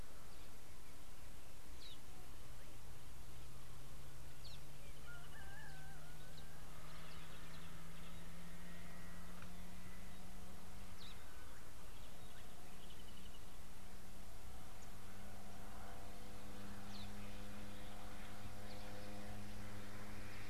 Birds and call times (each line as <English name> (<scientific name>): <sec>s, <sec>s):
Brubru (Nilaus afer): 5.2s, 13.1s